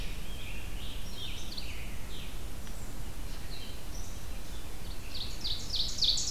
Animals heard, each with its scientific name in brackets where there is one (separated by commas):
Scarlet Tanager (Piranga olivacea), Ovenbird (Seiurus aurocapilla), Red-eyed Vireo (Vireo olivaceus)